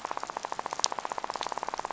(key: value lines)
label: biophony, rattle
recorder: SoundTrap 500